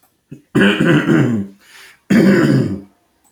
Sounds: Throat clearing